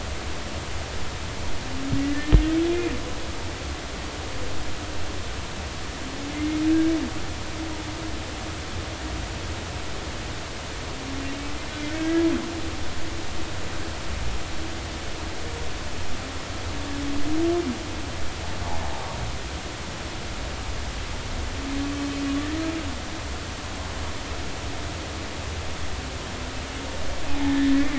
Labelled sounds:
2.1	2.9	humpback whale, 1.7 to 2.5 kHz
6.3	6.6	humpback whale, 2.0 to 2.2 kHz
12.0	12.3	humpback whale, 1.5 to 1.7 kHz
27.3	27.9	humpback whale, 0.80 to 2.1 kHz

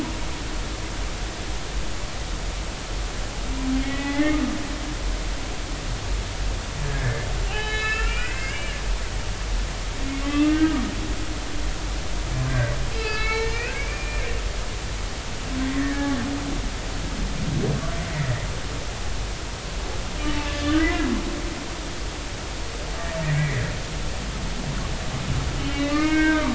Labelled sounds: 3.8	4.4	humpback whale, 1.9 to 3.5 kHz
6.8	8.8	humpback whale, 0.80 to 5.1 kHz
10.3	10.8	humpback whale, 1.1 to 2.8 kHz
12.5	14.2	humpback whale, 1.2 to 4.3 kHz
15.7	16.2	humpback whale, 1.6 to 2.2 kHz
20.5	21.1	humpback whale, 1.7 to 2.1 kHz
23.3	23.6	humpback whale, 1.7 to 2.4 kHz
25.6	26.5	humpback whale, 1.0 to 2.9 kHz

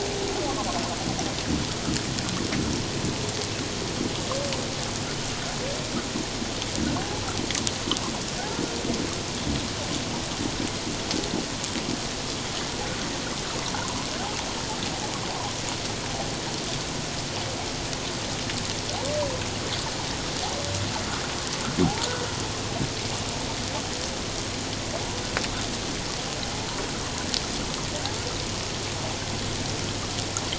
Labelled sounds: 7.0	7.2	humpback whale, 0.78 to 0.94 kHz
13.7	14.1	humpback whale, 0.78 to 1.1 kHz
26.5	26.8	humpback whale, 0.81 to 1.0 kHz

